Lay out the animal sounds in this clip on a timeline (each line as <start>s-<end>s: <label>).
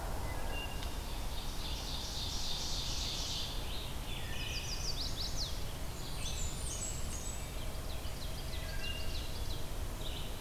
0.0s-0.9s: Wood Thrush (Hylocichla mustelina)
0.8s-3.8s: Ovenbird (Seiurus aurocapilla)
2.5s-4.7s: Scarlet Tanager (Piranga olivacea)
3.2s-10.4s: Red-eyed Vireo (Vireo olivaceus)
4.0s-5.2s: Wood Thrush (Hylocichla mustelina)
4.3s-5.7s: Chestnut-sided Warbler (Setophaga pensylvanica)
5.9s-7.6s: Blackburnian Warbler (Setophaga fusca)
7.4s-9.6s: Ovenbird (Seiurus aurocapilla)
8.5s-9.3s: Wood Thrush (Hylocichla mustelina)